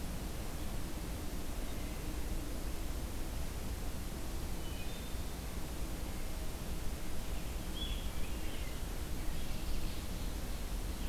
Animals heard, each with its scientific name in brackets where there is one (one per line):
Wood Thrush (Hylocichla mustelina)